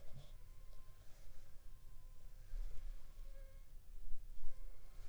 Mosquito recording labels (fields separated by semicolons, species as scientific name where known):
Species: Anopheles funestus s.s.; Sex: female; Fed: unfed; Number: one; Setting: cup